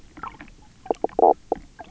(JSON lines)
{"label": "biophony, knock croak", "recorder": "SoundTrap 300"}